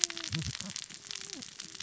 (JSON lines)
{"label": "biophony, cascading saw", "recorder": "SoundTrap 600 or HydroMoth"}